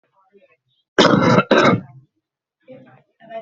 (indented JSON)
{
  "expert_labels": [
    {
      "quality": "good",
      "cough_type": "wet",
      "dyspnea": false,
      "wheezing": false,
      "stridor": false,
      "choking": false,
      "congestion": false,
      "nothing": true,
      "diagnosis": "obstructive lung disease",
      "severity": "mild"
    }
  ],
  "age": 58,
  "gender": "male",
  "respiratory_condition": false,
  "fever_muscle_pain": false,
  "status": "COVID-19"
}